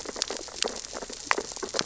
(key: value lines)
label: biophony, sea urchins (Echinidae)
recorder: SoundTrap 600 or HydroMoth